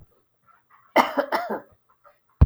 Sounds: Cough